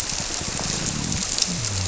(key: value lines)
label: biophony
recorder: SoundTrap 300